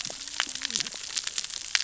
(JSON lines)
{"label": "biophony, cascading saw", "recorder": "SoundTrap 600 or HydroMoth"}